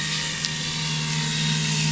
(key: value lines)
label: anthrophony, boat engine
recorder: SoundTrap 500